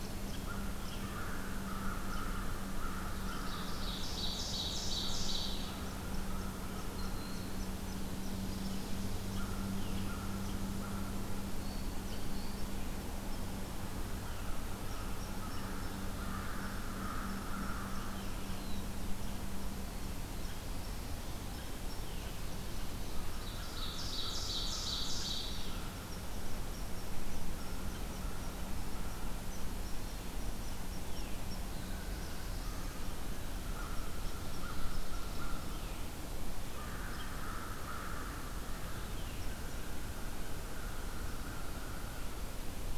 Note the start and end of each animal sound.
[0.00, 4.12] American Crow (Corvus brachyrhynchos)
[0.00, 42.98] unknown mammal
[2.94, 5.97] Ovenbird (Seiurus aurocapilla)
[5.51, 7.46] American Crow (Corvus brachyrhynchos)
[9.21, 11.16] American Crow (Corvus brachyrhynchos)
[14.19, 18.22] American Crow (Corvus brachyrhynchos)
[23.14, 25.72] Ovenbird (Seiurus aurocapilla)
[31.46, 42.98] American Crow (Corvus brachyrhynchos)

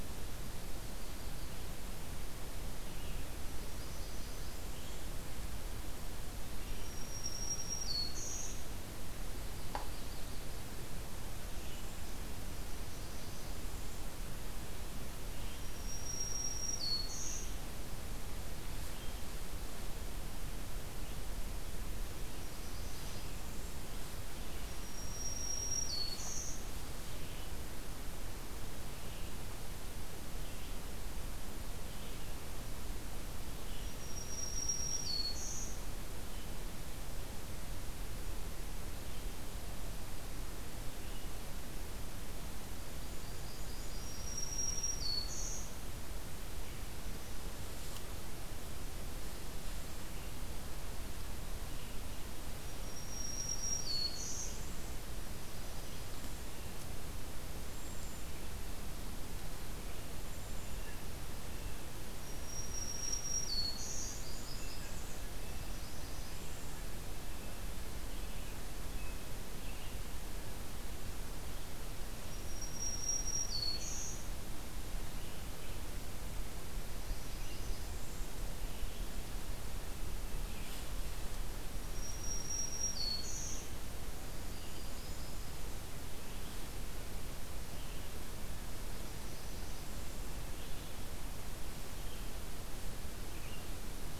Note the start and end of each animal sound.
[3.26, 5.11] Northern Parula (Setophaga americana)
[6.60, 8.73] Black-throated Green Warbler (Setophaga virens)
[9.17, 10.80] Yellow-rumped Warbler (Setophaga coronata)
[12.36, 14.07] Northern Parula (Setophaga americana)
[15.30, 17.57] Black-throated Green Warbler (Setophaga virens)
[21.99, 23.82] Northern Parula (Setophaga americana)
[22.72, 56.28] Red-eyed Vireo (Vireo olivaceus)
[24.57, 26.78] Black-throated Green Warbler (Setophaga virens)
[33.74, 35.84] Black-throated Green Warbler (Setophaga virens)
[42.85, 44.40] Northern Parula (Setophaga americana)
[43.86, 45.80] Black-throated Green Warbler (Setophaga virens)
[52.54, 54.69] Black-throated Green Warbler (Setophaga virens)
[57.59, 58.35] Cedar Waxwing (Bombycilla cedrorum)
[60.23, 60.85] Cedar Waxwing (Bombycilla cedrorum)
[60.37, 61.97] Blue Jay (Cyanocitta cristata)
[62.09, 64.25] Black-throated Green Warbler (Setophaga virens)
[63.96, 65.19] Northern Parula (Setophaga americana)
[64.42, 66.32] Blue Jay (Cyanocitta cristata)
[65.57, 66.80] Northern Parula (Setophaga americana)
[67.05, 70.10] American Robin (Turdus migratorius)
[71.39, 81.01] Red-eyed Vireo (Vireo olivaceus)
[72.09, 74.41] Black-throated Green Warbler (Setophaga virens)
[76.72, 78.39] Northern Parula (Setophaga americana)
[81.73, 83.69] Black-throated Green Warbler (Setophaga virens)
[82.96, 94.19] Red-eyed Vireo (Vireo olivaceus)
[83.94, 85.43] Northern Parula (Setophaga americana)
[88.90, 90.38] Northern Parula (Setophaga americana)

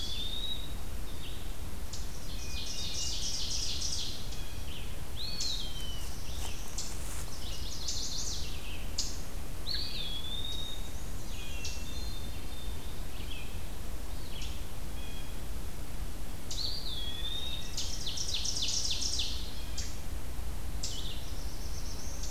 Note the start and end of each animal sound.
[0.00, 1.06] Eastern Wood-Pewee (Contopus virens)
[0.00, 14.62] Red-eyed Vireo (Vireo olivaceus)
[1.92, 4.34] Ovenbird (Seiurus aurocapilla)
[2.19, 3.62] Hermit Thrush (Catharus guttatus)
[4.94, 6.35] Eastern Wood-Pewee (Contopus virens)
[5.48, 6.92] Black-throated Blue Warbler (Setophaga caerulescens)
[7.06, 8.54] Chestnut-sided Warbler (Setophaga pensylvanica)
[9.42, 11.09] Eastern Wood-Pewee (Contopus virens)
[10.47, 12.24] Black-and-white Warbler (Mniotilta varia)
[11.11, 12.88] Hermit Thrush (Catharus guttatus)
[14.65, 15.77] Blue Jay (Cyanocitta cristata)
[16.45, 17.77] Eastern Wood-Pewee (Contopus virens)
[17.69, 19.65] Ovenbird (Seiurus aurocapilla)
[21.10, 22.30] Black-throated Blue Warbler (Setophaga caerulescens)

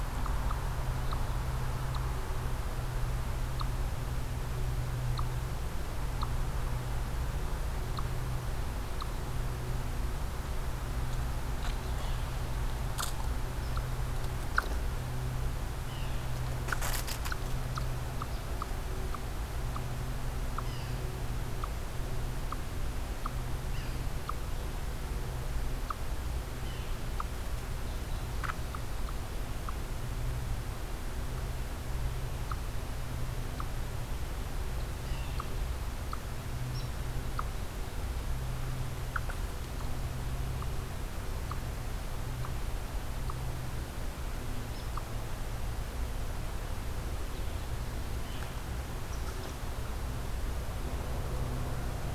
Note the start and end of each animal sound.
[0.00, 9.11] Eastern Chipmunk (Tamias striatus)
[11.69, 12.38] Yellow-bellied Sapsucker (Sphyrapicus varius)
[15.55, 16.48] Yellow-bellied Sapsucker (Sphyrapicus varius)
[20.56, 21.08] Yellow-bellied Sapsucker (Sphyrapicus varius)
[23.61, 24.17] Yellow-bellied Sapsucker (Sphyrapicus varius)
[26.51, 27.07] Yellow-bellied Sapsucker (Sphyrapicus varius)
[34.86, 35.54] Yellow-bellied Sapsucker (Sphyrapicus varius)
[36.50, 37.07] Downy Woodpecker (Dryobates pubescens)
[44.61, 44.98] Downy Woodpecker (Dryobates pubescens)

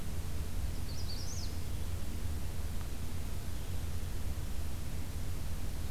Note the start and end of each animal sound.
[0.64, 1.55] Magnolia Warbler (Setophaga magnolia)

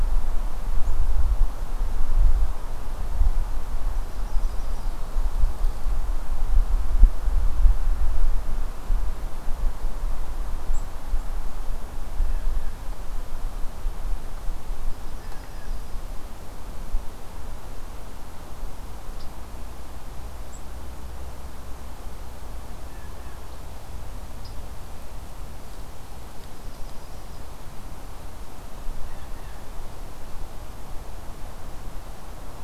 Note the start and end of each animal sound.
[3.71, 4.93] Yellow-rumped Warbler (Setophaga coronata)
[14.91, 15.99] Yellow-rumped Warbler (Setophaga coronata)
[26.18, 27.55] Yellow-rumped Warbler (Setophaga coronata)
[28.96, 29.61] Blue Jay (Cyanocitta cristata)

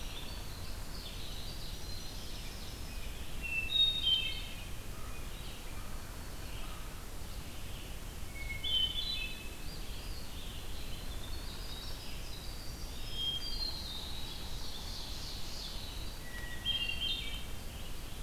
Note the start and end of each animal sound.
[0.00, 3.28] Winter Wren (Troglodytes hiemalis)
[0.00, 18.22] Red-eyed Vireo (Vireo olivaceus)
[1.11, 3.06] Ovenbird (Seiurus aurocapilla)
[3.24, 4.86] Hermit Thrush (Catharus guttatus)
[4.86, 6.94] American Crow (Corvus brachyrhynchos)
[8.31, 9.81] Hermit Thrush (Catharus guttatus)
[9.63, 10.56] Eastern Wood-Pewee (Contopus virens)
[11.10, 16.54] Winter Wren (Troglodytes hiemalis)
[12.88, 14.47] Hermit Thrush (Catharus guttatus)
[13.76, 15.95] Ovenbird (Seiurus aurocapilla)
[16.16, 17.51] Hermit Thrush (Catharus guttatus)

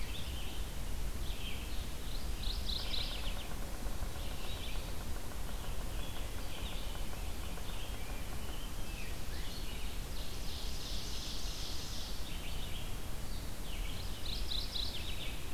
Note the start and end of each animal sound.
[0.00, 0.76] Rose-breasted Grosbeak (Pheucticus ludovicianus)
[0.00, 14.03] Red-eyed Vireo (Vireo olivaceus)
[1.96, 3.74] Mourning Warbler (Geothlypis philadelphia)
[2.74, 7.69] Yellow-bellied Sapsucker (Sphyrapicus varius)
[7.47, 10.10] Rose-breasted Grosbeak (Pheucticus ludovicianus)
[9.89, 12.35] Ovenbird (Seiurus aurocapilla)
[13.77, 15.35] Mourning Warbler (Geothlypis philadelphia)

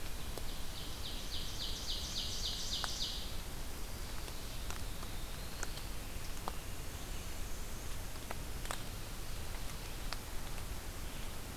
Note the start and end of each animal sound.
[0.00, 3.38] Ovenbird (Seiurus aurocapilla)
[4.51, 5.97] Black-throated Blue Warbler (Setophaga caerulescens)
[6.44, 8.17] Black-and-white Warbler (Mniotilta varia)
[6.74, 11.57] Red-eyed Vireo (Vireo olivaceus)

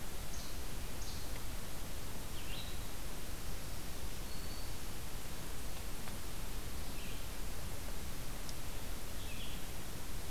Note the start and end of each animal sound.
[0.00, 1.28] Least Flycatcher (Empidonax minimus)
[0.00, 10.30] Red-eyed Vireo (Vireo olivaceus)

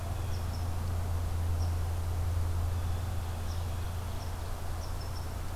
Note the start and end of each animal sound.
[0.00, 0.62] Blue Jay (Cyanocitta cristata)
[0.00, 5.49] Red Squirrel (Tamiasciurus hudsonicus)
[2.62, 4.41] Blue Jay (Cyanocitta cristata)

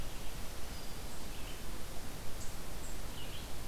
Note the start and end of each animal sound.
[0.42, 1.13] Black-throated Green Warbler (Setophaga virens)
[1.21, 3.68] Red-eyed Vireo (Vireo olivaceus)

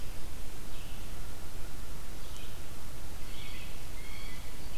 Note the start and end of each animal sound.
[0.00, 4.52] Red-eyed Vireo (Vireo olivaceus)
[3.11, 4.68] Blue Jay (Cyanocitta cristata)

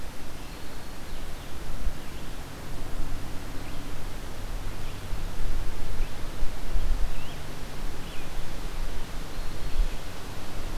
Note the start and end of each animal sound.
[0.00, 10.77] Red-eyed Vireo (Vireo olivaceus)
[0.16, 1.20] Black-throated Green Warbler (Setophaga virens)

